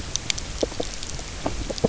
{"label": "biophony, knock croak", "recorder": "SoundTrap 300"}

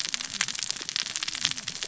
{"label": "biophony, cascading saw", "recorder": "SoundTrap 600 or HydroMoth"}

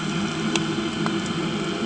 {"label": "anthrophony, boat engine", "recorder": "HydroMoth"}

